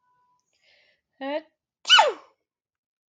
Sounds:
Sneeze